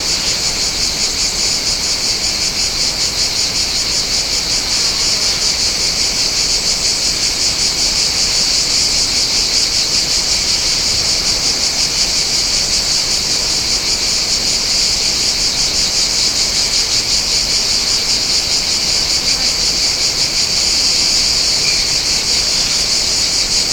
Are many different types of creatures present?
yes